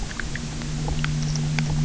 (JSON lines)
{"label": "anthrophony, boat engine", "recorder": "SoundTrap 300"}
{"label": "biophony", "recorder": "SoundTrap 300"}